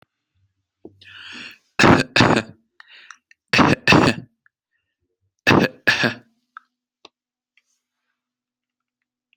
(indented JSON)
{
  "expert_labels": [
    {
      "quality": "good",
      "cough_type": "dry",
      "dyspnea": false,
      "wheezing": false,
      "stridor": false,
      "choking": false,
      "congestion": false,
      "nothing": true,
      "diagnosis": "healthy cough",
      "severity": "pseudocough/healthy cough"
    }
  ],
  "age": 45,
  "gender": "male",
  "respiratory_condition": false,
  "fever_muscle_pain": false,
  "status": "healthy"
}